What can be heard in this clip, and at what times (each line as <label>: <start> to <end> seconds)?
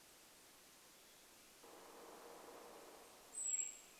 woodpecker drumming: 0 to 4 seconds
Golden-crowned Kinglet song: 2 to 4 seconds
Western Tanager song: 2 to 4 seconds